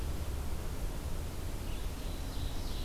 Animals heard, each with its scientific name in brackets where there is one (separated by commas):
Ovenbird (Seiurus aurocapilla), Red-eyed Vireo (Vireo olivaceus)